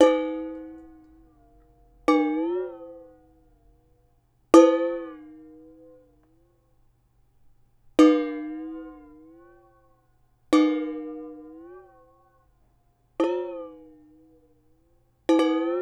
What is happening with water to cause the sounds?
dripping